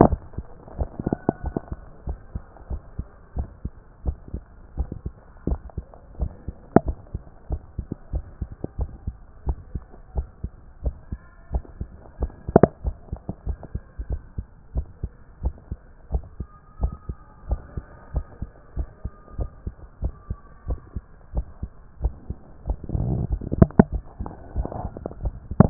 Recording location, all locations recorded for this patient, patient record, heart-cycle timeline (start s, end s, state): tricuspid valve (TV)
aortic valve (AV)+pulmonary valve (PV)+tricuspid valve (TV)+mitral valve (MV)
#Age: nan
#Sex: Female
#Height: nan
#Weight: nan
#Pregnancy status: True
#Murmur: Absent
#Murmur locations: nan
#Most audible location: nan
#Systolic murmur timing: nan
#Systolic murmur shape: nan
#Systolic murmur grading: nan
#Systolic murmur pitch: nan
#Systolic murmur quality: nan
#Diastolic murmur timing: nan
#Diastolic murmur shape: nan
#Diastolic murmur grading: nan
#Diastolic murmur pitch: nan
#Diastolic murmur quality: nan
#Outcome: Abnormal
#Campaign: 2014 screening campaign
0.00	1.92	unannotated
1.92	2.06	diastole
2.06	2.18	S1
2.18	2.34	systole
2.34	2.42	S2
2.42	2.70	diastole
2.70	2.82	S1
2.82	2.98	systole
2.98	3.06	S2
3.06	3.36	diastole
3.36	3.48	S1
3.48	3.64	systole
3.64	3.72	S2
3.72	4.04	diastole
4.04	4.16	S1
4.16	4.32	systole
4.32	4.42	S2
4.42	4.78	diastole
4.78	4.90	S1
4.90	5.04	systole
5.04	5.14	S2
5.14	5.48	diastole
5.48	5.60	S1
5.60	5.76	systole
5.76	5.86	S2
5.86	6.20	diastole
6.20	6.32	S1
6.32	6.46	systole
6.46	6.56	S2
6.56	6.84	diastole
6.84	6.96	S1
6.96	7.12	systole
7.12	7.22	S2
7.22	7.50	diastole
7.50	7.62	S1
7.62	7.76	systole
7.76	7.86	S2
7.86	8.12	diastole
8.12	8.24	S1
8.24	8.40	systole
8.40	8.50	S2
8.50	8.78	diastole
8.78	8.90	S1
8.90	9.06	systole
9.06	9.16	S2
9.16	9.46	diastole
9.46	9.58	S1
9.58	9.74	systole
9.74	9.82	S2
9.82	10.16	diastole
10.16	10.28	S1
10.28	10.42	systole
10.42	10.52	S2
10.52	10.84	diastole
10.84	10.96	S1
10.96	11.10	systole
11.10	11.20	S2
11.20	11.52	diastole
11.52	11.64	S1
11.64	11.80	systole
11.80	11.88	S2
11.88	12.20	diastole
12.20	12.32	S1
12.32	12.48	systole
12.48	12.60	S2
12.60	12.84	diastole
12.84	12.96	S1
12.96	13.10	systole
13.10	13.20	S2
13.20	13.46	diastole
13.46	13.58	S1
13.58	13.74	systole
13.74	13.82	S2
13.82	14.08	diastole
14.08	14.20	S1
14.20	14.36	systole
14.36	14.46	S2
14.46	14.74	diastole
14.74	14.86	S1
14.86	15.02	systole
15.02	15.12	S2
15.12	15.42	diastole
15.42	15.54	S1
15.54	15.70	systole
15.70	15.78	S2
15.78	16.12	diastole
16.12	16.24	S1
16.24	16.38	systole
16.38	16.48	S2
16.48	16.80	diastole
16.80	16.94	S1
16.94	17.08	systole
17.08	17.16	S2
17.16	17.48	diastole
17.48	17.60	S1
17.60	17.76	systole
17.76	17.84	S2
17.84	18.14	diastole
18.14	18.26	S1
18.26	18.40	systole
18.40	18.50	S2
18.50	18.76	diastole
18.76	18.88	S1
18.88	19.04	systole
19.04	19.12	S2
19.12	19.38	diastole
19.38	19.50	S1
19.50	19.64	systole
19.64	19.74	S2
19.74	20.02	diastole
20.02	20.14	S1
20.14	20.28	systole
20.28	20.38	S2
20.38	20.68	diastole
20.68	20.80	S1
20.80	20.94	systole
20.94	21.04	S2
21.04	21.34	diastole
21.34	21.46	S1
21.46	21.62	systole
21.62	21.70	S2
21.70	22.02	diastole
22.02	22.14	S1
22.14	22.28	systole
22.28	22.38	S2
22.38	22.68	diastole
22.68	25.70	unannotated